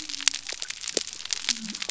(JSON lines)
{"label": "biophony", "recorder": "SoundTrap 300"}